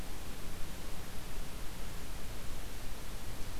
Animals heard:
forest ambience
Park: Acadia National Park